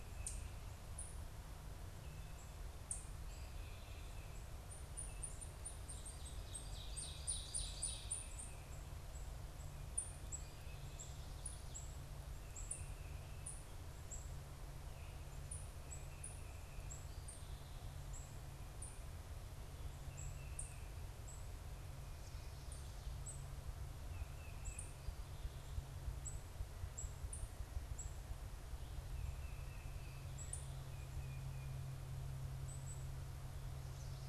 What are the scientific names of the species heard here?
unidentified bird, Seiurus aurocapilla, Baeolophus bicolor